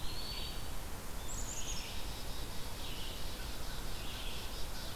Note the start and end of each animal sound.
[0.00, 0.73] Eastern Wood-Pewee (Contopus virens)
[0.00, 4.95] Red-eyed Vireo (Vireo olivaceus)
[1.25, 4.95] Black-capped Chickadee (Poecile atricapillus)

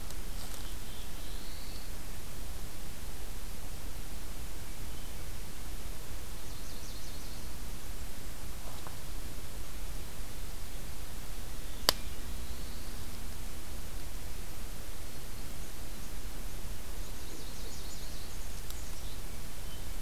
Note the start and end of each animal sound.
[0.43, 2.12] Black-throated Blue Warbler (Setophaga caerulescens)
[6.33, 7.54] Nashville Warbler (Leiothlypis ruficapilla)
[11.54, 13.31] Black-throated Blue Warbler (Setophaga caerulescens)
[16.83, 18.33] Nashville Warbler (Leiothlypis ruficapilla)
[18.32, 19.25] Black-capped Chickadee (Poecile atricapillus)

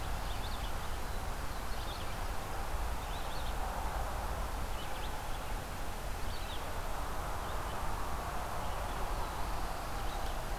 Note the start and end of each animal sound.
[0.00, 10.58] Red-eyed Vireo (Vireo olivaceus)

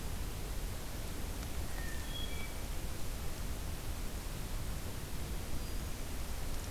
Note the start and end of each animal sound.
[1.52, 2.66] Hermit Thrush (Catharus guttatus)

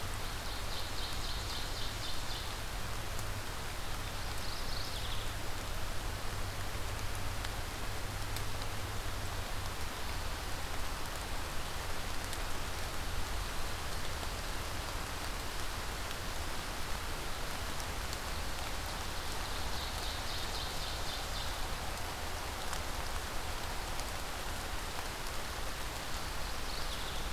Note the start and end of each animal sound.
[0.03, 2.78] Ovenbird (Seiurus aurocapilla)
[4.04, 5.38] Mourning Warbler (Geothlypis philadelphia)
[19.03, 21.78] Ovenbird (Seiurus aurocapilla)
[25.92, 27.33] Mourning Warbler (Geothlypis philadelphia)

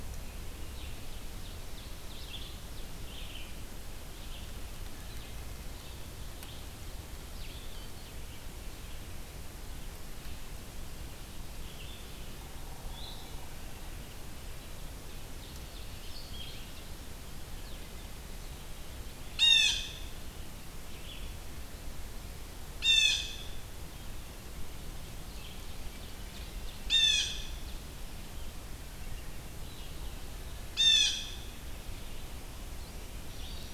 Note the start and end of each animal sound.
[0.00, 8.04] Red-eyed Vireo (Vireo olivaceus)
[0.71, 2.92] Ovenbird (Seiurus aurocapilla)
[9.88, 33.74] Red-eyed Vireo (Vireo olivaceus)
[14.72, 17.02] Ovenbird (Seiurus aurocapilla)
[19.22, 19.99] Blue Jay (Cyanocitta cristata)
[21.79, 23.58] Blue Jay (Cyanocitta cristata)
[24.74, 27.79] Ovenbird (Seiurus aurocapilla)
[26.60, 31.97] Blue Jay (Cyanocitta cristata)
[33.11, 33.74] Black-throated Green Warbler (Setophaga virens)

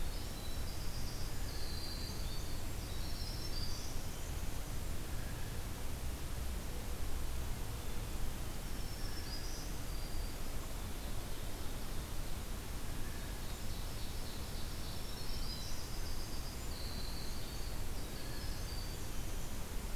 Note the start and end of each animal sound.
[0.00, 4.51] Winter Wren (Troglodytes hiemalis)
[2.81, 4.00] Black-throated Green Warbler (Setophaga virens)
[5.03, 5.61] Blue Jay (Cyanocitta cristata)
[8.62, 10.42] Black-throated Green Warbler (Setophaga virens)
[10.66, 12.30] Ovenbird (Seiurus aurocapilla)
[12.77, 13.51] Blue Jay (Cyanocitta cristata)
[13.24, 15.38] Ovenbird (Seiurus aurocapilla)
[14.69, 15.89] Black-throated Green Warbler (Setophaga virens)
[14.97, 19.95] Winter Wren (Troglodytes hiemalis)

